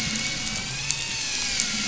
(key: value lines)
label: anthrophony, boat engine
recorder: SoundTrap 500